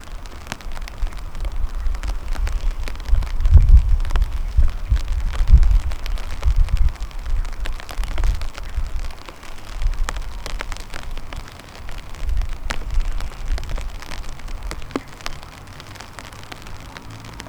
Are the people celebrating a bonfire?
yes